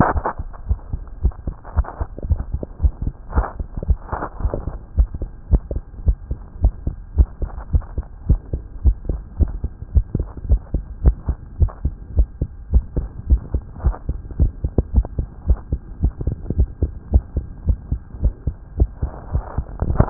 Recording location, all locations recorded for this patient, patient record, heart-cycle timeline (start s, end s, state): tricuspid valve (TV)
aortic valve (AV)+pulmonary valve (PV)+tricuspid valve (TV)+mitral valve (MV)
#Age: Child
#Sex: Male
#Height: 129.0 cm
#Weight: 23.6 kg
#Pregnancy status: False
#Murmur: Absent
#Murmur locations: nan
#Most audible location: nan
#Systolic murmur timing: nan
#Systolic murmur shape: nan
#Systolic murmur grading: nan
#Systolic murmur pitch: nan
#Systolic murmur quality: nan
#Diastolic murmur timing: nan
#Diastolic murmur shape: nan
#Diastolic murmur grading: nan
#Diastolic murmur pitch: nan
#Diastolic murmur quality: nan
#Outcome: Normal
#Campaign: 2015 screening campaign
0.00	6.02	unannotated
6.02	6.16	S1
6.16	6.28	systole
6.28	6.38	S2
6.38	6.60	diastole
6.60	6.74	S1
6.74	6.84	systole
6.84	6.94	S2
6.94	7.16	diastole
7.16	7.30	S1
7.30	7.42	systole
7.42	7.50	S2
7.50	7.72	diastole
7.72	7.84	S1
7.84	7.96	systole
7.96	8.06	S2
8.06	8.28	diastole
8.28	8.40	S1
8.40	8.52	systole
8.52	8.62	S2
8.62	8.84	diastole
8.84	8.98	S1
8.98	9.08	systole
9.08	9.22	S2
9.22	9.40	diastole
9.40	9.54	S1
9.54	9.62	systole
9.62	9.72	S2
9.72	9.92	diastole
9.92	10.04	S1
10.04	10.14	systole
10.14	10.28	S2
10.28	10.48	diastole
10.48	10.62	S1
10.62	10.72	systole
10.72	10.86	S2
10.86	11.04	diastole
11.04	11.18	S1
11.18	11.28	systole
11.28	11.38	S2
11.38	11.58	diastole
11.58	11.72	S1
11.72	11.82	systole
11.82	11.94	S2
11.94	12.14	diastole
12.14	12.28	S1
12.28	12.40	systole
12.40	12.50	S2
12.50	12.72	diastole
12.72	12.86	S1
12.86	12.96	systole
12.96	13.08	S2
13.08	13.28	diastole
13.28	13.42	S1
13.42	13.52	systole
13.52	13.62	S2
13.62	13.84	diastole
13.84	13.96	S1
13.96	14.08	systole
14.08	14.20	S2
14.20	14.38	diastole
14.38	14.52	S1
14.52	14.62	systole
14.62	14.72	S2
14.72	14.92	diastole
14.92	15.06	S1
15.06	15.16	systole
15.16	15.28	S2
15.28	15.48	diastole
15.48	15.58	S1
15.58	15.70	systole
15.70	15.82	S2
15.82	16.02	diastole
16.02	16.14	S1
16.14	16.25	systole
16.25	16.38	S2
16.38	16.58	diastole
16.58	16.70	S1
16.70	16.80	systole
16.80	16.94	S2
16.94	17.11	diastole
17.11	17.26	S1
17.26	17.34	systole
17.34	17.46	S2
17.46	17.66	diastole
17.66	17.77	S1
17.77	17.88	systole
17.88	18.00	S2
18.00	18.20	diastole
18.20	18.34	S1
18.34	18.44	systole
18.44	18.56	S2
18.56	18.76	diastole
18.76	18.88	S1
18.88	19.00	systole
19.00	19.12	S2
19.12	19.32	diastole
19.32	19.44	S1
19.44	19.56	systole
19.56	19.66	S2
19.66	20.10	unannotated